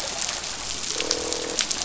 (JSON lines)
{"label": "biophony, croak", "recorder": "SoundTrap 500"}